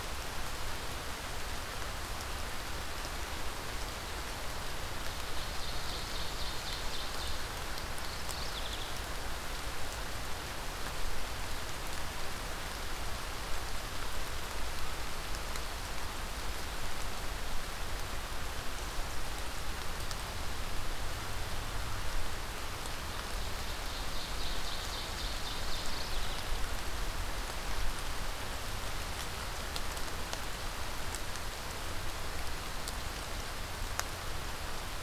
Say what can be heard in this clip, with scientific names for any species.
Seiurus aurocapilla, Geothlypis philadelphia